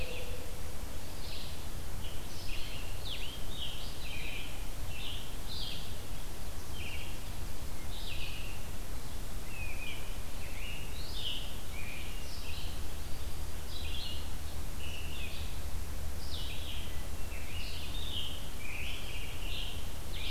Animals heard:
Red-eyed Vireo (Vireo olivaceus)
Scarlet Tanager (Piranga olivacea)

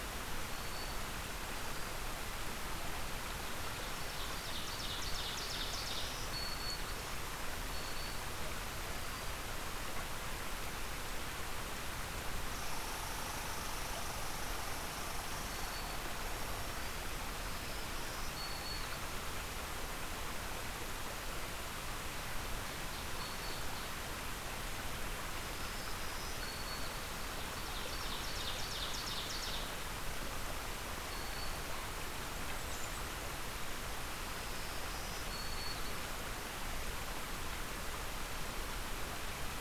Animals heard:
Ovenbird (Seiurus aurocapilla)
Red Squirrel (Tamiasciurus hudsonicus)
Black-throated Green Warbler (Setophaga virens)
Blackburnian Warbler (Setophaga fusca)

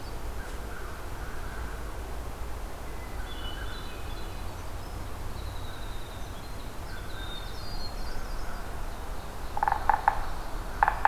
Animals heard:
Winter Wren (Troglodytes hiemalis)
Yellow-bellied Sapsucker (Sphyrapicus varius)
Hermit Thrush (Catharus guttatus)
Pine Warbler (Setophaga pinus)
American Crow (Corvus brachyrhynchos)

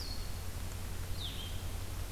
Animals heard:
Blue-headed Vireo (Vireo solitarius)

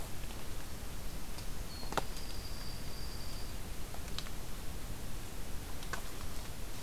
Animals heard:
Dark-eyed Junco (Junco hyemalis)

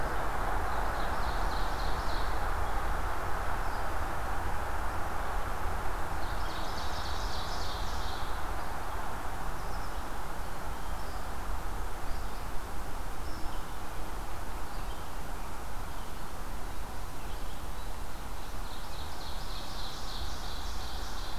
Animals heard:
Red-eyed Vireo (Vireo olivaceus)
Ovenbird (Seiurus aurocapilla)

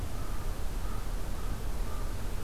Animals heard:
American Crow (Corvus brachyrhynchos)

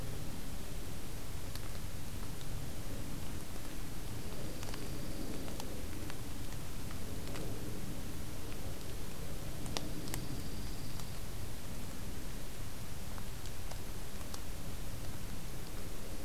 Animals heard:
Dark-eyed Junco (Junco hyemalis)

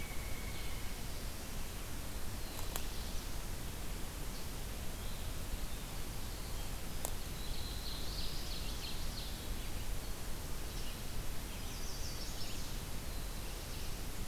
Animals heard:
Chestnut-sided Warbler (Setophaga pensylvanica)
Black-throated Blue Warbler (Setophaga caerulescens)
Red-eyed Vireo (Vireo olivaceus)
Ovenbird (Seiurus aurocapilla)
Northern Flicker (Colaptes auratus)

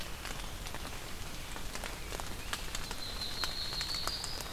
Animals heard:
Yellow-rumped Warbler (Setophaga coronata)

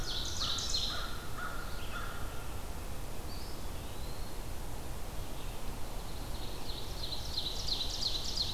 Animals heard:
Ovenbird (Seiurus aurocapilla)
American Crow (Corvus brachyrhynchos)
Red-eyed Vireo (Vireo olivaceus)
Eastern Wood-Pewee (Contopus virens)

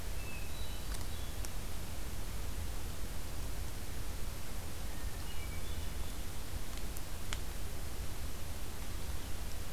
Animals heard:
Hermit Thrush (Catharus guttatus)

